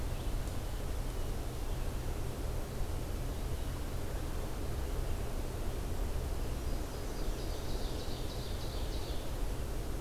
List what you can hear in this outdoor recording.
Nashville Warbler, Ovenbird